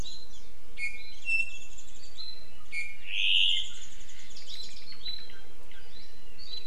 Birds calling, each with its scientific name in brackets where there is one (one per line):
Apapane (Himatione sanguinea)
Warbling White-eye (Zosterops japonicus)